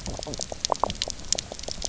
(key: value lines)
label: biophony, knock croak
recorder: SoundTrap 300